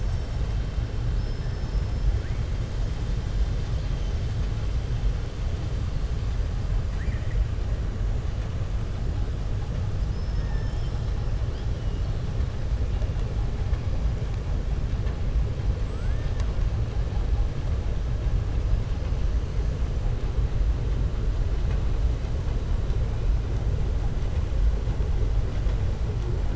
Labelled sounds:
1.1	2.0	killer whale, southern resident, 5.2 to 6.2 kHz
6.9	7.4	killer whale, southern resident, 1.6 to 2.5 kHz
10.0	11.1	killer whale, southern resident, 5.0 to 6.2 kHz

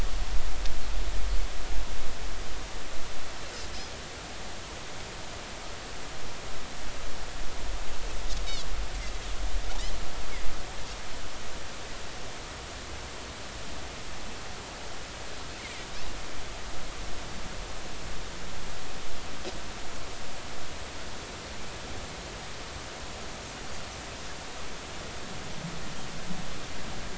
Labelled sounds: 8.4	8.7	Pacific white-sided dolphin, 3.2 to 3.8 kHz

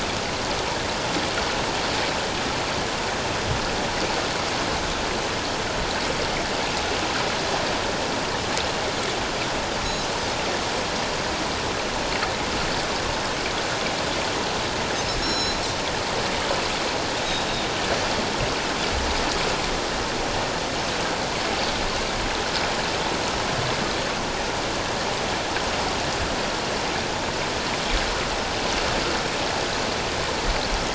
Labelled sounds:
15.2	15.6	Pacific white-sided dolphin, 3.9 to 6.9 kHz

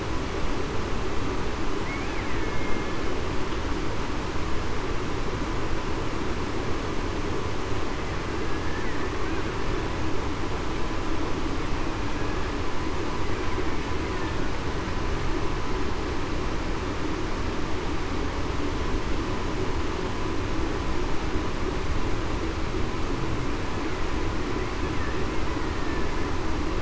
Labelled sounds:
2.4	2.8	killer whale, Bigg's (transient), 2.1 to 2.2 kHz
8.5	8.8	killer whale, Bigg's (transient), 1.7 to 1.8 kHz

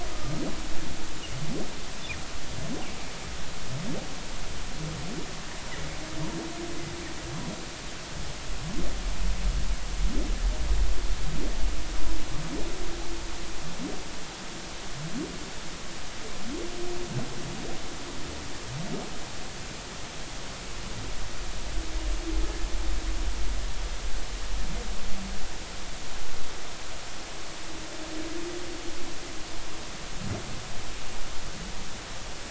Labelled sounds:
0.1	0.4	humpback whale, 1.2 to 1.3 kHz

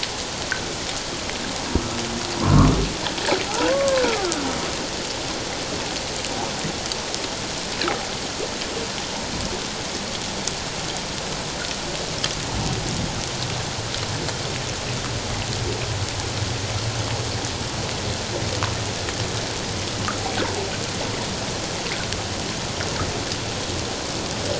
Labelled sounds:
2.4	2.7	humpback whale, 0.91 to 1.3 kHz
3.7	4.3	humpback whale, 1.0 to 1.6 kHz

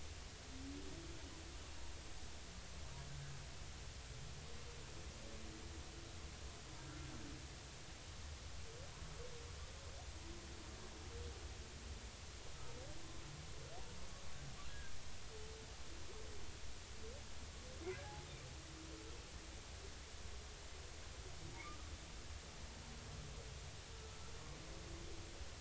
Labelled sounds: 14.7	15.0	humpback whale, 1.5 to 1.7 kHz
17.9	18.2	humpback whale, 1.4 to 1.8 kHz
23.9	24.2	humpback whale, 1.2 to 1.4 kHz

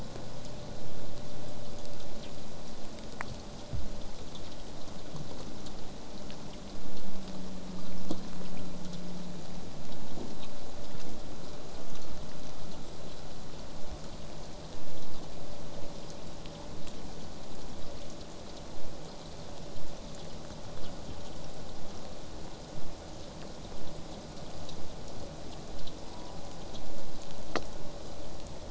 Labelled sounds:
12.8	13.5	killer whale, southern resident, J pod, whistle, 7.4 to 8.0 kHz
13.7	18.7	vessel noise, 0 to 8.0 kHz
26.1	26.5	killer whale, southern resident, J pod, call S04, 0.35 to 1.2 kHz

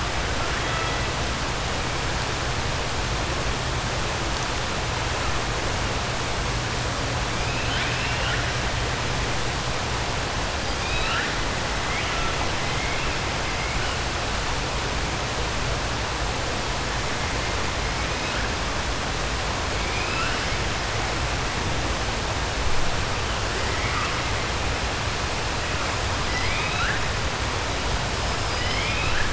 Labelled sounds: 0.4	1.0	killer whale, 0.67 to 3.3 kHz
7.4	8.4	killer whale, 1.4 to 3.8 kHz
10.6	11.3	killer whale, 1.3 to 4.9 kHz
12.6	13.1	killer whale, 1.6 to 3.1 kHz
26.2	27.0	killer whale, 1.3 to 5.6 kHz
28.3	29.3	killer whale, 1.3 to 5.2 kHz

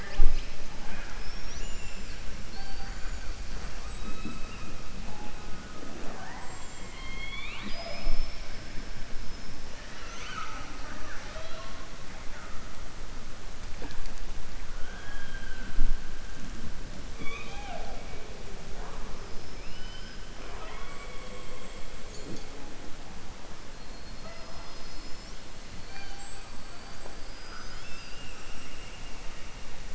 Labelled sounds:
6.8	8.6	killer whale, southern resident, 0.24 to 5.5 kHz
25.8	26.5	killer whale, southern resident, 0.77 to 4.7 kHz

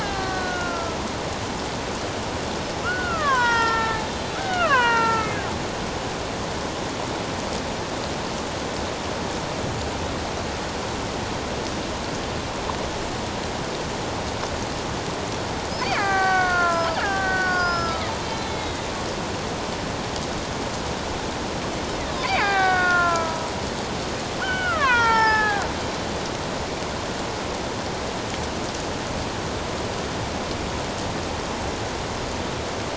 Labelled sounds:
0.0	1.0	killer whale, Bigg's (transient), 1.1 to 1.8 kHz
2.8	5.3	killer whale, Bigg's (transient), 0.84 to 5.4 kHz
15.8	18.9	killer whale, Bigg's (transient), 0.78 to 5.2 kHz
22.2	23.5	killer whale, Bigg's (transient), 0.78 to 5.0 kHz
24.4	25.7	killer whale, Bigg's (transient), 0.78 to 3.6 kHz

